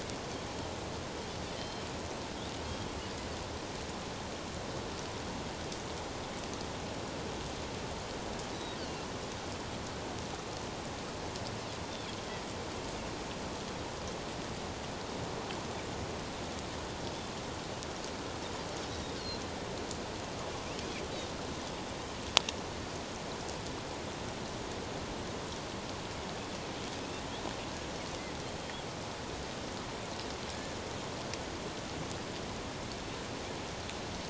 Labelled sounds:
1.6	1.9	Pacific white-sided dolphin, 3.0 to 5.3 kHz
8.8	9.1	Pacific white-sided dolphin, 2.7 to 4.8 kHz
30.5	30.8	Pacific white-sided dolphin, 1.6 to 1.8 kHz

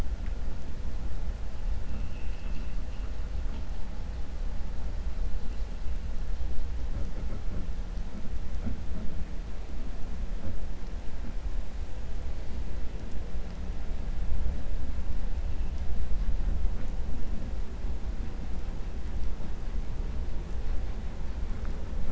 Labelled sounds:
1.8	2.7	vessel noise, 2.1 to 4.7 kHz

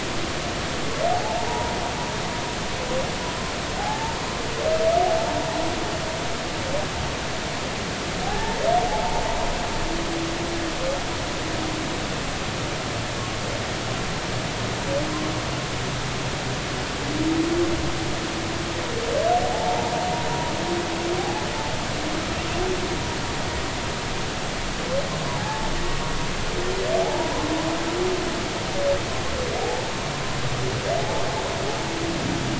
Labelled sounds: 1.1	1.8	humpback whale, 0.80 to 0.99 kHz
3.8	4.2	humpback whale, 0.80 to 0.96 kHz
8.2	9.2	humpback whale, 0.80 to 1.8 kHz
19.5	19.9	humpback whale, 0.80 to 0.96 kHz
21.2	21.4	humpback whale, 0.80 to 0.90 kHz
25.3	25.7	humpback whale, 0.80 to 1.2 kHz
27.0	27.3	humpback whale, 0.80 to 0.99 kHz
29.6	29.8	humpback whale, 0.80 to 0.93 kHz
31.0	31.2	humpback whale, 0.80 to 0.93 kHz

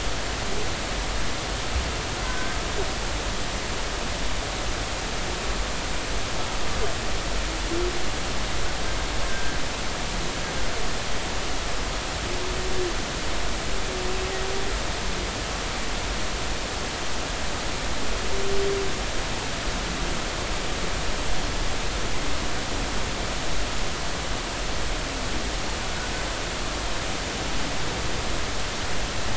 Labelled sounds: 2.2	2.6	humpback whale, 1.5 to 1.6 kHz
9.3	9.6	humpback whale, 1.5 to 1.8 kHz

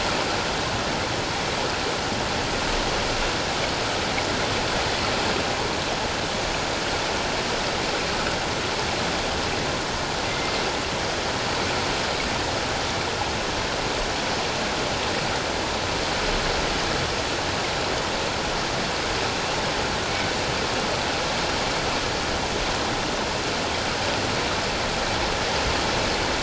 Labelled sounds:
10.3	10.5	killer whale, 2.0 to 2.1 kHz

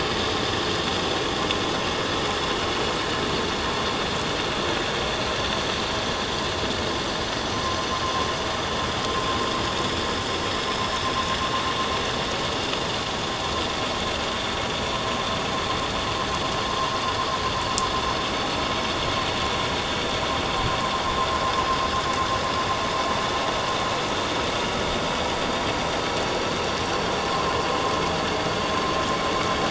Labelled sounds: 7.5	7.9	vessel noise, 1.0 to 1.1 kHz

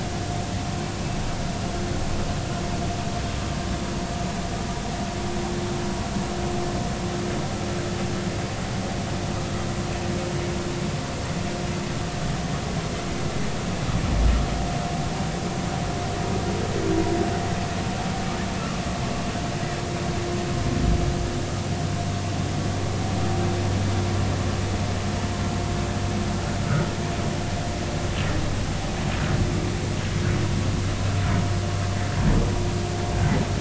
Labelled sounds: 26.6	26.9	humpback whale, 1.2 to 1.6 kHz

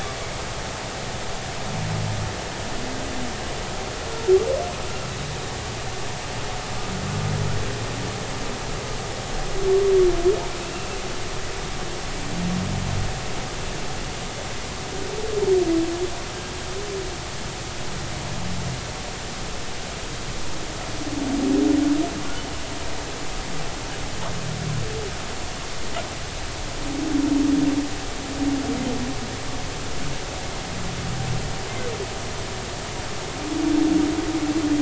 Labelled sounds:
10.6	10.9	humpback whale, 2.5 to 2.8 kHz

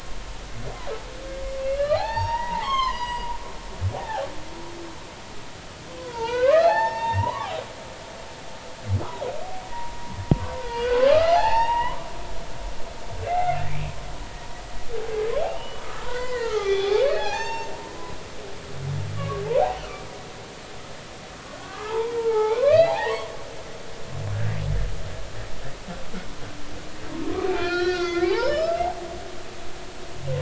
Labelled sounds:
1.6	3.5	humpback whale, 0.80 to 7.6 kHz
4.0	4.2	humpback whale, 0.80 to 0.93 kHz
6.0	7.6	humpback whale, 0.80 to 5.5 kHz
9.7	10.0	humpback whale, 0.90 to 1.0 kHz
10.8	12.1	humpback whale, 0.80 to 5.7 kHz
13.2	13.6	humpback whale, 2.0 to 2.2 kHz
15.4	17.8	humpback whale, 0.80 to 6.4 kHz
19.2	19.4	humpback whale, 1.1 to 1.2 kHz
19.8	20.1	humpback whale, 1.1 to 2.4 kHz
21.4	23.3	humpback whale, 0.80 to 4.9 kHz
27.5	28.8	humpback whale, 0.80 to 5.5 kHz

